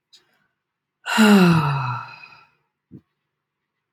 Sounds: Sigh